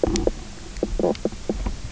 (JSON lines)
{"label": "biophony, knock croak", "recorder": "SoundTrap 300"}